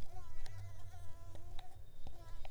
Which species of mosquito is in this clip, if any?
Mansonia africanus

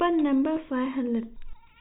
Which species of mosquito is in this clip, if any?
no mosquito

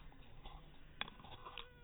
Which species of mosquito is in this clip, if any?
mosquito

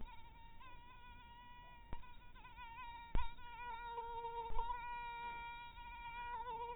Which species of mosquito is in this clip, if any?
mosquito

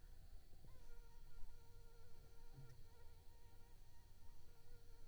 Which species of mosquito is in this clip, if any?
Anopheles arabiensis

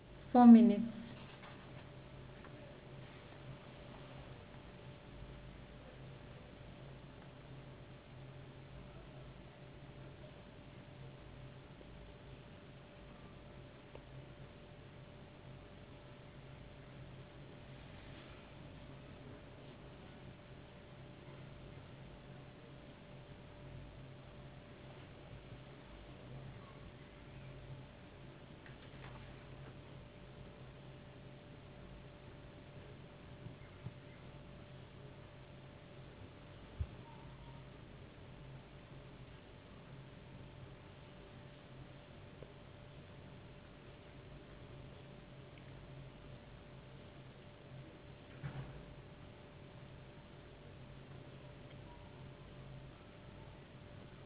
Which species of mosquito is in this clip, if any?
no mosquito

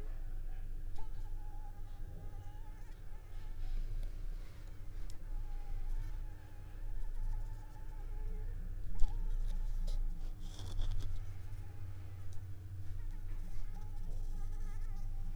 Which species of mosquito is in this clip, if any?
Anopheles arabiensis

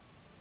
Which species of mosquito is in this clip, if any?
Anopheles gambiae s.s.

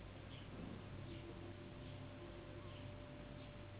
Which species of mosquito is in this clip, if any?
Anopheles gambiae s.s.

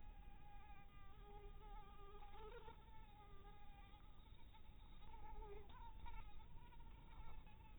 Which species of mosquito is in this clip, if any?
Anopheles maculatus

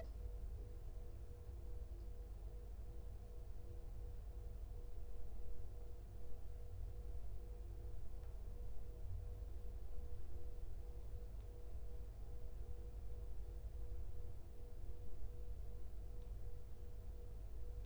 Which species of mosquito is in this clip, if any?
no mosquito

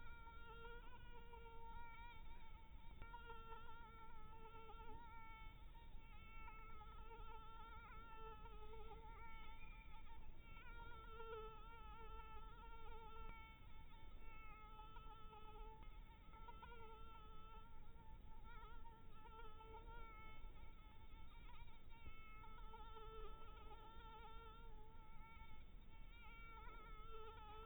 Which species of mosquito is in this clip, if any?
Anopheles dirus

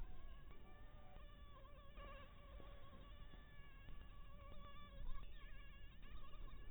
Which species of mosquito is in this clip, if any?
Anopheles maculatus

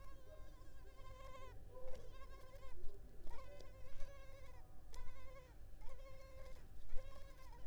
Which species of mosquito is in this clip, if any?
Culex pipiens complex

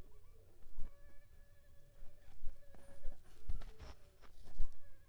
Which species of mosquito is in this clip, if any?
Aedes aegypti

